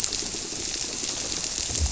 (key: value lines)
label: biophony
recorder: SoundTrap 300